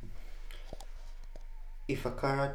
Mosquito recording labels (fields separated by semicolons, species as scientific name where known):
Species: Anopheles arabiensis; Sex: female; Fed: unfed; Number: one; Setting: cup